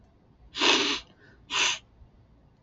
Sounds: Sniff